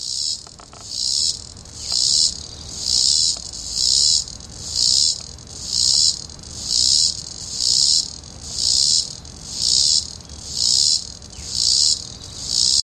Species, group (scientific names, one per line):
Neotibicen robinsonianus
Cicadidae